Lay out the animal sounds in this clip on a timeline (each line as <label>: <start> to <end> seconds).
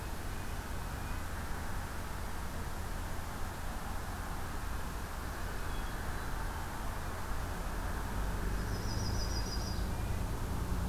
Hermit Thrush (Catharus guttatus): 5.7 to 6.8 seconds
Yellow-rumped Warbler (Setophaga coronata): 8.5 to 9.9 seconds